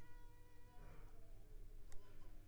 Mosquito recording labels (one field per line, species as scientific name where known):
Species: Culex pipiens complex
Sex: female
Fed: unfed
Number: one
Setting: cup